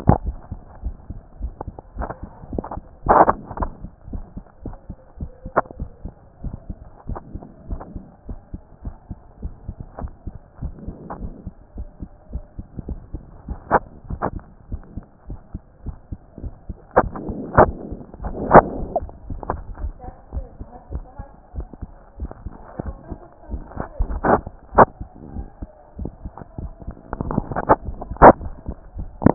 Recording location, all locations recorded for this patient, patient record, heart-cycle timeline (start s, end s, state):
mitral valve (MV)
aortic valve (AV)+pulmonary valve (PV)+tricuspid valve (TV)+mitral valve (MV)
#Age: Child
#Sex: Male
#Height: 133.0 cm
#Weight: 27.6 kg
#Pregnancy status: False
#Murmur: Absent
#Murmur locations: nan
#Most audible location: nan
#Systolic murmur timing: nan
#Systolic murmur shape: nan
#Systolic murmur grading: nan
#Systolic murmur pitch: nan
#Systolic murmur quality: nan
#Diastolic murmur timing: nan
#Diastolic murmur shape: nan
#Diastolic murmur grading: nan
#Diastolic murmur pitch: nan
#Diastolic murmur quality: nan
#Outcome: Normal
#Campaign: 2014 screening campaign
0.00	5.78	unannotated
5.78	5.90	S1
5.90	6.04	systole
6.04	6.14	S2
6.14	6.44	diastole
6.44	6.56	S1
6.56	6.68	systole
6.68	6.78	S2
6.78	7.08	diastole
7.08	7.20	S1
7.20	7.34	systole
7.34	7.42	S2
7.42	7.68	diastole
7.68	7.80	S1
7.80	7.94	systole
7.94	8.04	S2
8.04	8.28	diastole
8.28	8.38	S1
8.38	8.52	systole
8.52	8.62	S2
8.62	8.84	diastole
8.84	8.94	S1
8.94	9.10	systole
9.10	9.18	S2
9.18	9.42	diastole
9.42	9.54	S1
9.54	9.66	systole
9.66	9.76	S2
9.76	10.00	diastole
10.00	10.12	S1
10.12	10.26	systole
10.26	10.36	S2
10.36	10.59	diastole
10.59	29.34	unannotated